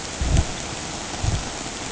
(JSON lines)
{"label": "ambient", "recorder": "HydroMoth"}